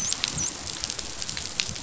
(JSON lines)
{"label": "biophony, dolphin", "recorder": "SoundTrap 500"}